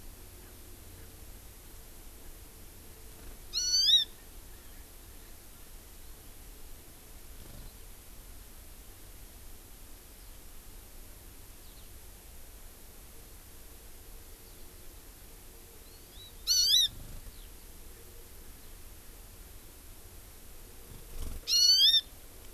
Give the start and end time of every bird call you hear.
0.4s-0.5s: Erckel's Francolin (Pternistis erckelii)
1.0s-1.1s: Erckel's Francolin (Pternistis erckelii)
2.2s-2.3s: Erckel's Francolin (Pternistis erckelii)
3.5s-4.1s: Hawaii Amakihi (Chlorodrepanis virens)
4.5s-4.9s: Erckel's Francolin (Pternistis erckelii)
10.2s-10.4s: Eurasian Skylark (Alauda arvensis)
11.6s-11.9s: Eurasian Skylark (Alauda arvensis)
14.4s-14.9s: Eurasian Skylark (Alauda arvensis)
15.9s-17.0s: Hawaii Amakihi (Chlorodrepanis virens)
17.3s-17.5s: Eurasian Skylark (Alauda arvensis)
21.5s-22.1s: Hawaii Amakihi (Chlorodrepanis virens)

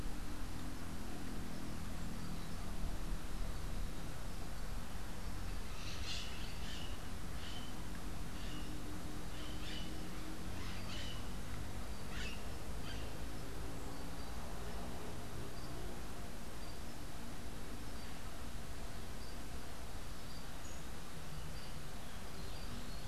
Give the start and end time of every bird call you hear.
5.7s-13.2s: Crimson-fronted Parakeet (Psittacara finschi)

